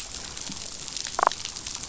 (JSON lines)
{"label": "biophony", "recorder": "SoundTrap 500"}
{"label": "biophony, damselfish", "recorder": "SoundTrap 500"}